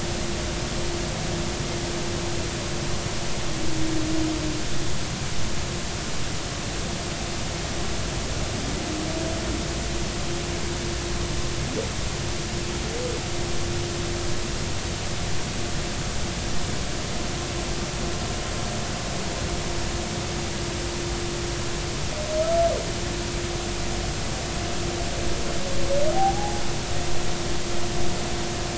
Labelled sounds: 26.1	26.6	humpback whale, 0.80 to 0.90 kHz

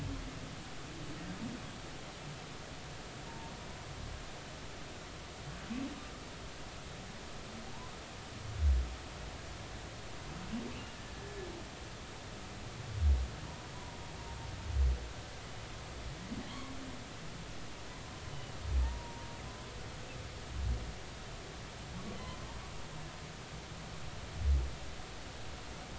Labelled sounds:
3.3	3.5	humpback whale, 0.86 to 0.99 kHz
10.7	11.0	humpback whale, 2.5 to 2.9 kHz
13.7	14.0	humpback whale, 0.93 to 1.1 kHz
16.5	16.7	humpback whale, 0.93 to 1.2 kHz
18.3	19.3	humpback whale, 0.86 to 3.1 kHz

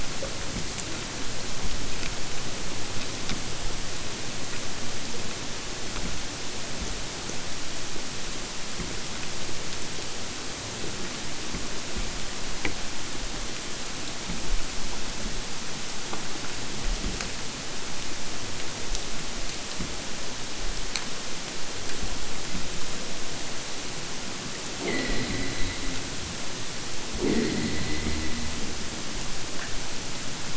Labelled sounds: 24.8	26.0	killer whale, southern Alaska resident, 0 to 5.8 kHz
27.2	28.7	killer whale, southern Alaska resident, 0 to 4.9 kHz

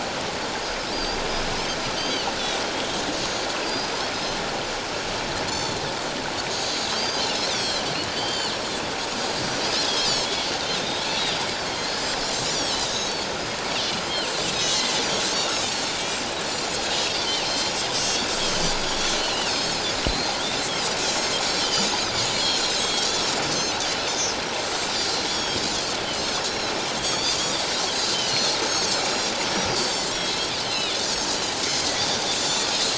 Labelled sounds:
0.9	1.2	Pacific white-sided dolphin, 4.6 to 5.0 kHz
1.9	2.3	Pacific white-sided dolphin, 2.8 to 7.9 kHz
3.2	3.9	Pacific white-sided dolphin, 4.6 to 6.8 kHz
5.5	5.8	Pacific white-sided dolphin, 3.4 to 7.2 kHz
6.5	7.8	Pacific white-sided dolphin, 3.1 to 7.9 kHz
8.1	8.6	Pacific white-sided dolphin, 2.8 to 6.3 kHz
9.9	10.3	Pacific white-sided dolphin, 4.2 to 5.4 kHz
10.7	13.1	Pacific white-sided dolphin, 2.4 to 7.1 kHz
14.5	15.0	Pacific white-sided dolphin, 2.9 to 6.5 kHz
16.0	16.2	Pacific white-sided dolphin, 2.2 to 2.4 kHz
17.5	17.8	Pacific white-sided dolphin, 3.1 to 7.4 kHz
19.0	20.4	Pacific white-sided dolphin, 2.3 to 6.6 kHz
21.0	21.3	Pacific white-sided dolphin, 5.2 to 7.8 kHz
21.6	23.1	Pacific white-sided dolphin, 2.9 to 7.0 kHz
23.5	23.8	Pacific white-sided dolphin, 5.9 to 6.4 kHz
25.0	25.6	Pacific white-sided dolphin, 3.2 to 7.0 kHz
26.2	27.4	Pacific white-sided dolphin, 3.2 to 6.5 kHz
28.0	31.0	Pacific white-sided dolphin, 2.8 to 7.0 kHz
31.7	32.9	Pacific white-sided dolphin, 3.4 to 7.2 kHz

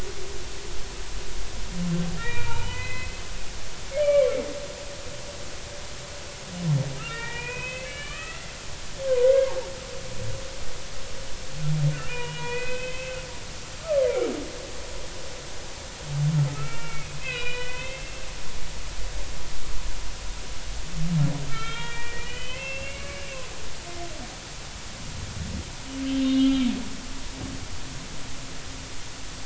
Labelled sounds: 2.2	3.2	humpback whale, 0.83 to 4.1 kHz
4.0	4.4	humpback whale, 1.0 to 3.0 kHz
7.0	8.5	humpback whale, 0.86 to 3.8 kHz
9.0	9.5	humpback whale, 0.96 to 2.2 kHz
12.0	13.2	humpback whale, 0.90 to 3.1 kHz
14.8	15.1	humpback whale, 1.0 to 1.4 kHz
16.5	18.2	humpback whale, 1.2 to 4.1 kHz
21.5	23.4	humpback whale, 1.3 to 3.4 kHz
26.2	26.7	humpback whale, 2.2 to 3.8 kHz

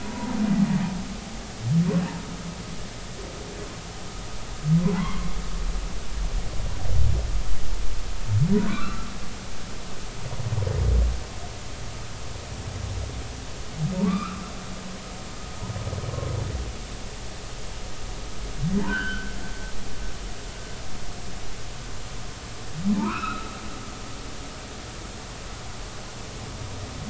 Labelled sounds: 0.0	0.4	humpback whale, 0.86 to 1.0 kHz
4.9	5.3	humpback whale, 0.83 to 2.2 kHz
8.5	9.1	humpback whale, 0.93 to 4.1 kHz
13.9	14.4	humpback whale, 0.86 to 2.5 kHz
18.9	19.3	humpback whale, 1.3 to 3.2 kHz
22.9	23.5	humpback whale, 0.83 to 2.8 kHz

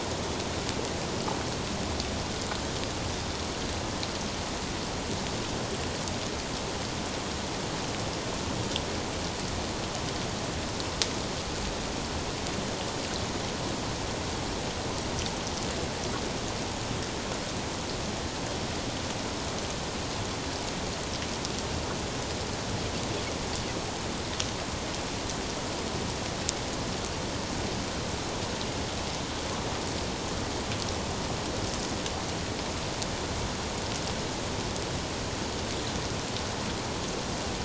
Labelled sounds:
3.1	3.4	Pacific white-sided dolphin, 3.4 to 3.7 kHz

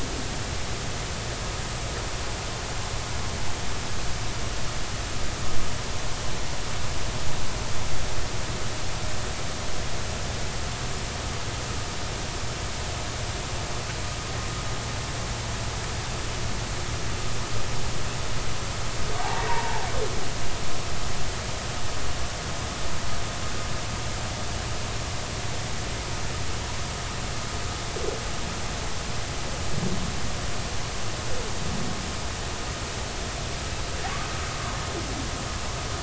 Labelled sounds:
0.0	0.3	humpback whale, 0.80 to 0.96 kHz
19.2	19.8	humpback whale, 0.80 to 1.1 kHz

